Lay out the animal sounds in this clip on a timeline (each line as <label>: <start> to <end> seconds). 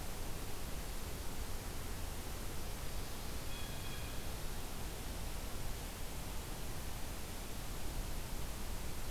Blue Jay (Cyanocitta cristata): 3.2 to 4.4 seconds